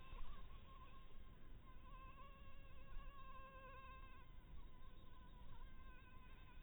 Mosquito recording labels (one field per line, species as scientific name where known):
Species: Anopheles maculatus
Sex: female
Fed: blood-fed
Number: one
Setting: cup